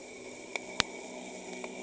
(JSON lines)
{"label": "anthrophony, boat engine", "recorder": "HydroMoth"}